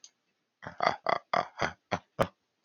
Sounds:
Laughter